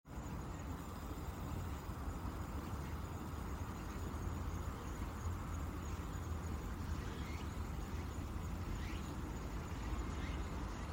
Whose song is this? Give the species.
Meimuna opalifera